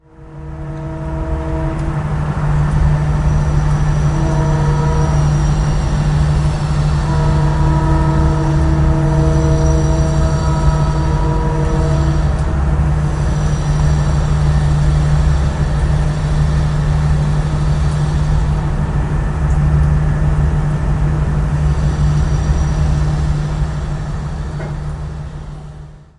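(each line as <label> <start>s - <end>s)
A train rumbles in the distance with a rhythmic, barely distinguishable clattering. 0.2s - 26.0s
Train wheels screech against the rails in the distance. 4.0s - 8.3s
A train horn is honking in the distance with a prolonged echoing sound. 4.1s - 6.0s
A train horn is honking in the distance with a prolonged echoing sound. 7.3s - 10.4s
Train wheels screech against the rails in the distance. 9.7s - 11.1s
Train wheels screech against the rails in the distance. 21.5s - 23.4s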